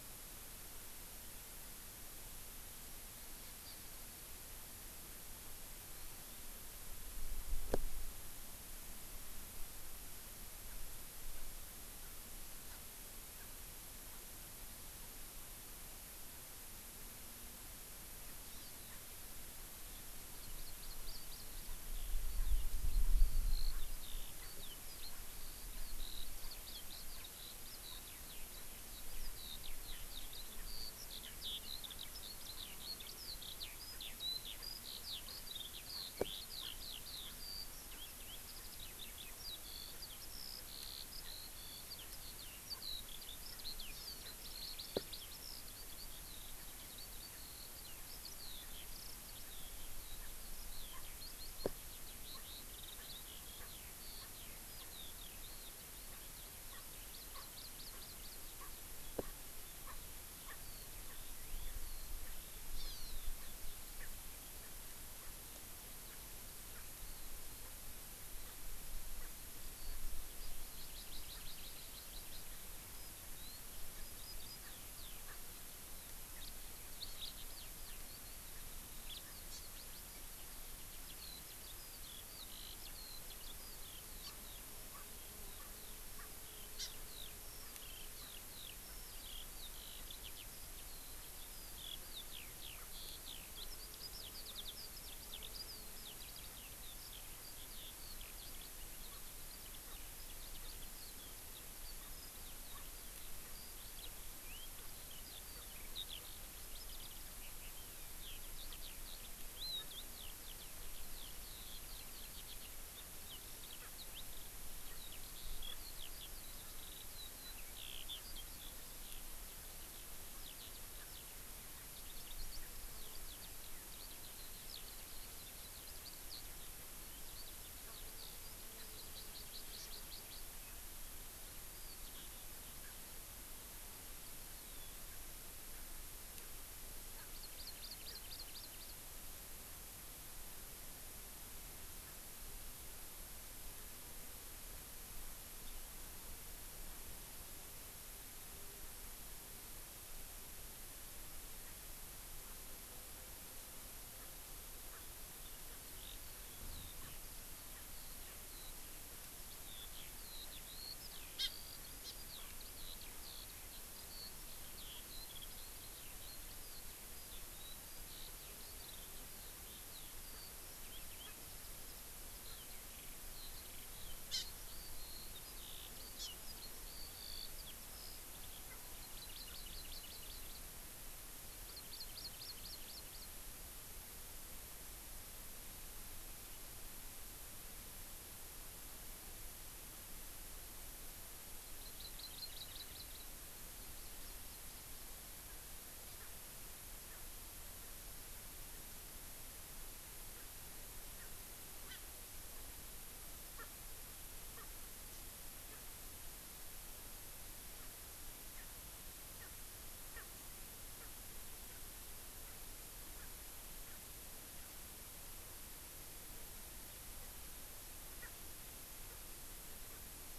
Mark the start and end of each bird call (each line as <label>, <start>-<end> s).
Hawaii Amakihi (Chlorodrepanis virens), 3.7-3.8 s
Hawaii Amakihi (Chlorodrepanis virens), 5.9-6.5 s
Hawaii Amakihi (Chlorodrepanis virens), 18.5-18.9 s
Hawaii Amakihi (Chlorodrepanis virens), 20.3-21.8 s
Eurasian Skylark (Alauda arvensis), 21.9-57.1 s
Erckel's Francolin (Pternistis erckelii), 50.9-51.0 s
Erckel's Francolin (Pternistis erckelii), 52.3-52.5 s
Erckel's Francolin (Pternistis erckelii), 53.0-53.1 s
Erckel's Francolin (Pternistis erckelii), 53.6-53.7 s
Erckel's Francolin (Pternistis erckelii), 54.2-54.3 s
Erckel's Francolin (Pternistis erckelii), 56.7-56.8 s
Hawaii Amakihi (Chlorodrepanis virens), 57.1-58.4 s
Erckel's Francolin (Pternistis erckelii), 57.3-57.5 s
Erckel's Francolin (Pternistis erckelii), 57.9-58.1 s
Eurasian Skylark (Alauda arvensis), 58.4-64.1 s
Erckel's Francolin (Pternistis erckelii), 58.6-58.8 s
Erckel's Francolin (Pternistis erckelii), 59.2-59.4 s
Erckel's Francolin (Pternistis erckelii), 59.8-60.0 s
Erckel's Francolin (Pternistis erckelii), 60.5-60.6 s
Hawaii Amakihi (Chlorodrepanis virens), 62.7-63.3 s
Erckel's Francolin (Pternistis erckelii), 65.2-65.4 s
Erckel's Francolin (Pternistis erckelii), 66.1-66.2 s
Erckel's Francolin (Pternistis erckelii), 66.7-66.9 s
Hawaii Amakihi (Chlorodrepanis virens), 67.0-67.3 s
Erckel's Francolin (Pternistis erckelii), 68.5-68.6 s
Erckel's Francolin (Pternistis erckelii), 69.2-69.3 s
Hawaii Amakihi (Chlorodrepanis virens), 70.4-72.4 s
Eurasian Skylark (Alauda arvensis), 72.9-128.7 s
Erckel's Francolin (Pternistis erckelii), 74.6-74.8 s
Erckel's Francolin (Pternistis erckelii), 75.3-75.4 s
Hawaii Amakihi (Chlorodrepanis virens), 79.5-79.6 s
Hawaii Amakihi (Chlorodrepanis virens), 84.2-84.4 s
Erckel's Francolin (Pternistis erckelii), 84.9-85.1 s
Erckel's Francolin (Pternistis erckelii), 85.6-85.7 s
Erckel's Francolin (Pternistis erckelii), 86.2-86.3 s
Hawaii Amakihi (Chlorodrepanis virens), 86.8-86.9 s
Erckel's Francolin (Pternistis erckelii), 88.2-88.3 s
Erckel's Francolin (Pternistis erckelii), 88.9-89.0 s
Erckel's Francolin (Pternistis erckelii), 92.7-92.9 s
Erckel's Francolin (Pternistis erckelii), 99.9-100.0 s
Erckel's Francolin (Pternistis erckelii), 100.6-100.8 s
Erckel's Francolin (Pternistis erckelii), 102.0-102.2 s
Erckel's Francolin (Pternistis erckelii), 102.7-102.9 s
Erckel's Francolin (Pternistis erckelii), 103.4-103.6 s
Erckel's Francolin (Pternistis erckelii), 104.7-104.9 s
Hawaii Amakihi (Chlorodrepanis virens), 105.5-105.7 s
Erckel's Francolin (Pternistis erckelii), 109.8-109.9 s
Erckel's Francolin (Pternistis erckelii), 113.8-113.9 s
Erckel's Francolin (Pternistis erckelii), 114.9-115.0 s
Erckel's Francolin (Pternistis erckelii), 115.6-115.8 s
Erckel's Francolin (Pternistis erckelii), 120.9-121.1 s
Erckel's Francolin (Pternistis erckelii), 127.8-128.0 s
Hawaii Amakihi (Chlorodrepanis virens), 128.8-130.5 s
Hawaii Amakihi (Chlorodrepanis virens), 137.3-139.0 s
Erckel's Francolin (Pternistis erckelii), 154.2-154.3 s
Erckel's Francolin (Pternistis erckelii), 154.9-155.0 s
Eurasian Skylark (Alauda arvensis), 155.0-178.8 s
Erckel's Francolin (Pternistis erckelii), 157.0-157.2 s
Erckel's Francolin (Pternistis erckelii), 157.7-157.9 s
Erckel's Francolin (Pternistis erckelii), 158.2-158.5 s
Hawaii Amakihi (Chlorodrepanis virens), 161.4-161.5 s
Hawaii Amakihi (Chlorodrepanis virens), 162.0-162.1 s
Erckel's Francolin (Pternistis erckelii), 170.3-170.4 s
Erckel's Francolin (Pternistis erckelii), 171.2-171.4 s
Erckel's Francolin (Pternistis erckelii), 172.4-172.6 s
Hawaii Amakihi (Chlorodrepanis virens), 174.3-174.5 s
Hawaii Amakihi (Chlorodrepanis virens), 176.2-176.3 s
Erckel's Francolin (Pternistis erckelii), 178.7-178.8 s
Hawaii Amakihi (Chlorodrepanis virens), 179.0-180.7 s
Erckel's Francolin (Pternistis erckelii), 179.4-179.7 s
Hawaii Amakihi (Chlorodrepanis virens), 181.7-183.4 s
Hawaii Amakihi (Chlorodrepanis virens), 191.8-193.3 s
Hawaii Amakihi (Chlorodrepanis virens), 193.6-194.7 s
Erckel's Francolin (Pternistis erckelii), 195.5-195.6 s
Erckel's Francolin (Pternistis erckelii), 196.2-196.3 s
Erckel's Francolin (Pternistis erckelii), 197.1-197.2 s
Erckel's Francolin (Pternistis erckelii), 200.3-200.5 s
Erckel's Francolin (Pternistis erckelii), 201.2-201.3 s
Erckel's Francolin (Pternistis erckelii), 201.9-202.0 s
Erckel's Francolin (Pternistis erckelii), 203.6-203.7 s
Erckel's Francolin (Pternistis erckelii), 204.6-204.7 s
Erckel's Francolin (Pternistis erckelii), 205.7-205.8 s
Erckel's Francolin (Pternistis erckelii), 207.7-208.0 s
Erckel's Francolin (Pternistis erckelii), 208.5-208.7 s
Erckel's Francolin (Pternistis erckelii), 209.3-209.5 s
Erckel's Francolin (Pternistis erckelii), 210.1-210.3 s
Erckel's Francolin (Pternistis erckelii), 211.0-211.1 s
Erckel's Francolin (Pternistis erckelii), 211.7-211.9 s
Erckel's Francolin (Pternistis erckelii), 212.4-212.6 s
Erckel's Francolin (Pternistis erckelii), 213.1-213.3 s
Erckel's Francolin (Pternistis erckelii), 213.9-214.0 s
Erckel's Francolin (Pternistis erckelii), 218.2-218.3 s
Erckel's Francolin (Pternistis erckelii), 219.1-219.2 s
Erckel's Francolin (Pternistis erckelii), 219.9-220.0 s